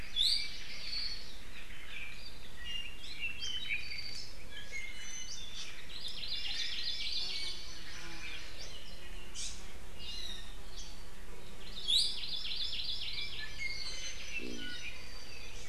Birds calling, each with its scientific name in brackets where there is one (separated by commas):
Hawaii Creeper (Loxops mana), Iiwi (Drepanis coccinea), Hawaii Amakihi (Chlorodrepanis virens), Apapane (Himatione sanguinea)